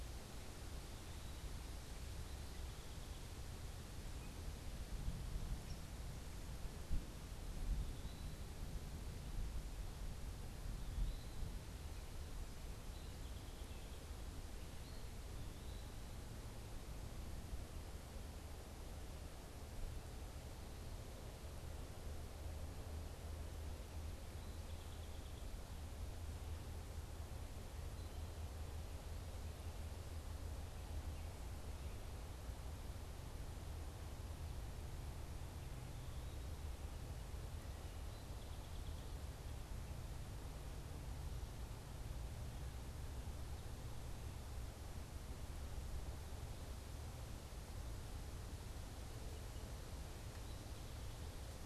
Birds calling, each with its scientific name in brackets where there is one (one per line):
Song Sparrow (Melospiza melodia)
Eastern Wood-Pewee (Contopus virens)